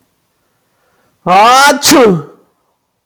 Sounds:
Sneeze